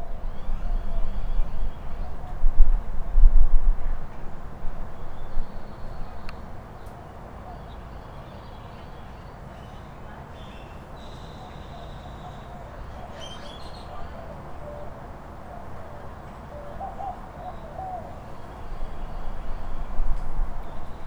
Is this in nature?
yes